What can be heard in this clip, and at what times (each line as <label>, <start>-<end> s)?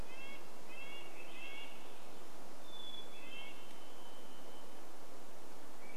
Swainson's Thrush song, 0-2 s
Red-breasted Nuthatch song, 0-4 s
Hermit Thrush song, 2-4 s
Varied Thrush song, 2-6 s
Swainson's Thrush song, 4-6 s